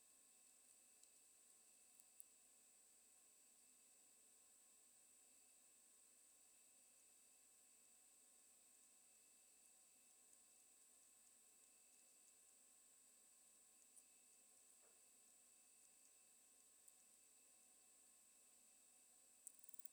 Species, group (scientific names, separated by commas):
Poecilimon hamatus, Orthoptera